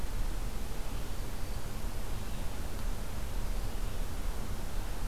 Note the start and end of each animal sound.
[0.80, 5.08] Red-eyed Vireo (Vireo olivaceus)

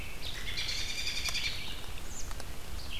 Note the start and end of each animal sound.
[0.31, 1.68] American Robin (Turdus migratorius)
[1.14, 3.00] Red-eyed Vireo (Vireo olivaceus)
[2.02, 2.32] American Robin (Turdus migratorius)

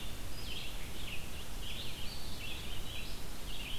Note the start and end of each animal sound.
[0.00, 3.79] Red-eyed Vireo (Vireo olivaceus)
[1.94, 3.21] Eastern Wood-Pewee (Contopus virens)

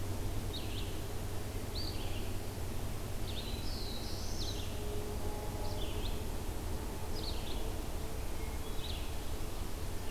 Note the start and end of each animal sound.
[0.00, 2.35] Red-eyed Vireo (Vireo olivaceus)
[2.83, 10.11] Red-eyed Vireo (Vireo olivaceus)
[3.00, 4.88] Black-throated Blue Warbler (Setophaga caerulescens)
[8.19, 9.38] Hermit Thrush (Catharus guttatus)

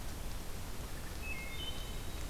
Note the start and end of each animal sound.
[1.05, 2.18] Wood Thrush (Hylocichla mustelina)

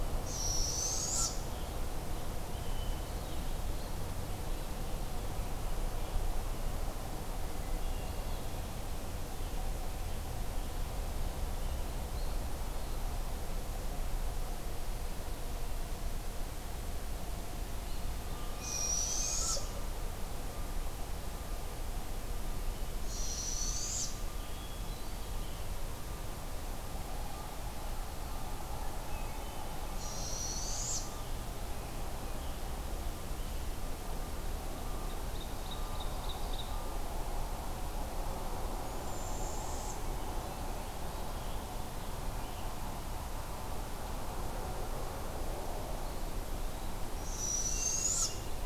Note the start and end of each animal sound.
[0.14, 1.44] Barred Owl (Strix varia)
[2.44, 3.67] Hermit Thrush (Catharus guttatus)
[7.40, 8.64] Hermit Thrush (Catharus guttatus)
[18.32, 19.56] Hermit Thrush (Catharus guttatus)
[18.46, 19.80] Barred Owl (Strix varia)
[22.86, 24.30] Barred Owl (Strix varia)
[24.20, 25.83] Hermit Thrush (Catharus guttatus)
[29.02, 29.82] Hermit Thrush (Catharus guttatus)
[29.85, 31.24] Barred Owl (Strix varia)
[34.98, 37.15] Ovenbird (Seiurus aurocapilla)
[38.57, 40.13] Barred Owl (Strix varia)
[46.97, 48.54] Barred Owl (Strix varia)
[47.62, 48.65] Hermit Thrush (Catharus guttatus)

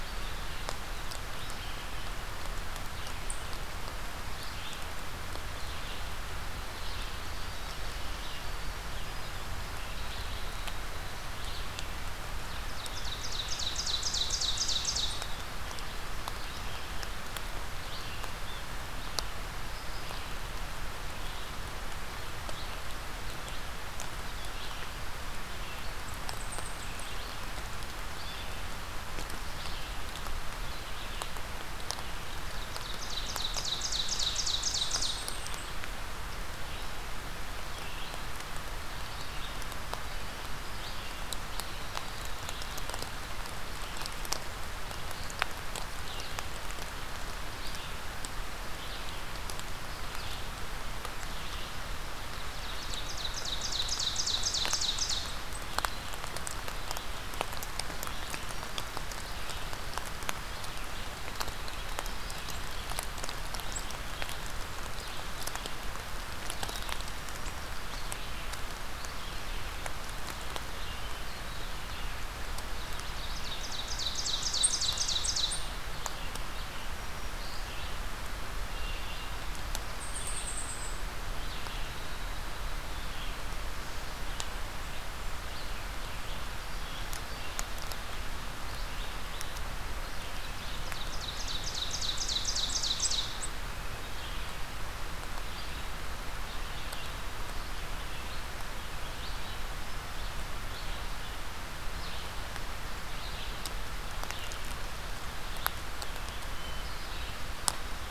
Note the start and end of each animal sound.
[0.00, 42.06] Red-eyed Vireo (Vireo olivaceus)
[6.49, 11.20] Winter Wren (Troglodytes hiemalis)
[12.52, 15.46] Ovenbird (Seiurus aurocapilla)
[25.97, 27.31] unidentified call
[32.08, 35.53] Ovenbird (Seiurus aurocapilla)
[34.56, 35.76] unidentified call
[42.39, 108.11] Red-eyed Vireo (Vireo olivaceus)
[52.33, 55.64] Ovenbird (Seiurus aurocapilla)
[72.78, 76.00] Ovenbird (Seiurus aurocapilla)
[76.61, 77.49] Black-throated Green Warbler (Setophaga virens)
[79.89, 80.98] unidentified call
[89.99, 93.67] Ovenbird (Seiurus aurocapilla)

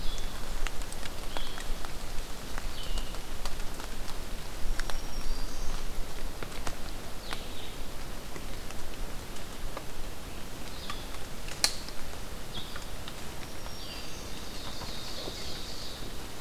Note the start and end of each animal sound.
[0.00, 16.41] Red-eyed Vireo (Vireo olivaceus)
[4.57, 5.78] Black-throated Green Warbler (Setophaga virens)
[13.31, 14.38] Black-throated Green Warbler (Setophaga virens)
[14.17, 16.15] Ovenbird (Seiurus aurocapilla)

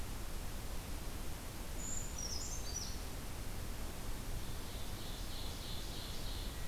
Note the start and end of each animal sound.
[1.69, 3.01] Brown Creeper (Certhia americana)
[4.38, 6.51] Ovenbird (Seiurus aurocapilla)

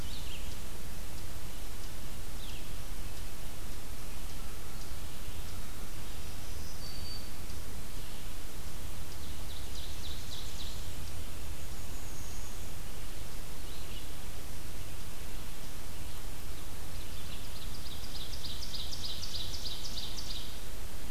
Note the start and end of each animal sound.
[0.00, 10.64] Eastern Chipmunk (Tamias striatus)
[0.00, 14.62] Red-eyed Vireo (Vireo olivaceus)
[5.88, 7.68] Black-throated Green Warbler (Setophaga virens)
[8.88, 11.43] Ovenbird (Seiurus aurocapilla)
[11.49, 12.74] unidentified call
[16.53, 20.94] Ovenbird (Seiurus aurocapilla)

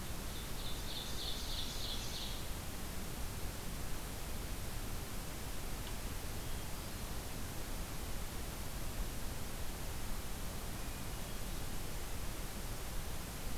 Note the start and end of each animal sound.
[0.00, 2.47] Ovenbird (Seiurus aurocapilla)
[6.36, 7.03] Hermit Thrush (Catharus guttatus)
[10.81, 11.56] Hermit Thrush (Catharus guttatus)

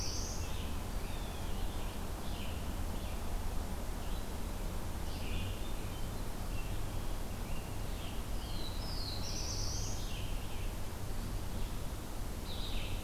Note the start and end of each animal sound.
[0.00, 0.64] Black-throated Blue Warbler (Setophaga caerulescens)
[0.00, 1.28] Scarlet Tanager (Piranga olivacea)
[0.00, 11.99] Red-eyed Vireo (Vireo olivaceus)
[0.00, 13.04] Blue-headed Vireo (Vireo solitarius)
[0.96, 1.60] Blue Jay (Cyanocitta cristata)
[7.23, 10.82] Scarlet Tanager (Piranga olivacea)
[8.19, 10.29] Black-throated Blue Warbler (Setophaga caerulescens)

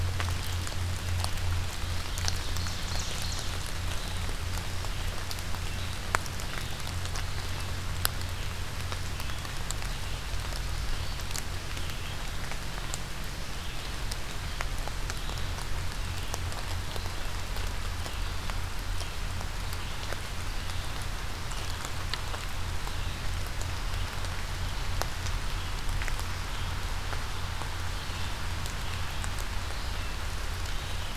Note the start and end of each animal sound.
[0.00, 31.16] Red-eyed Vireo (Vireo olivaceus)
[1.72, 3.57] Ovenbird (Seiurus aurocapilla)

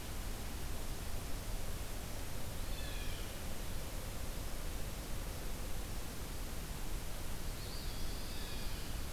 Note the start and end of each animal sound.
[2.40, 3.04] Eastern Wood-Pewee (Contopus virens)
[2.59, 3.83] Blue Jay (Cyanocitta cristata)
[7.47, 8.51] Eastern Wood-Pewee (Contopus virens)
[7.61, 9.12] Pine Warbler (Setophaga pinus)
[8.35, 8.95] Blue Jay (Cyanocitta cristata)

